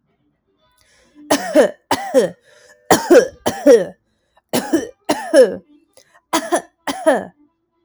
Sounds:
Cough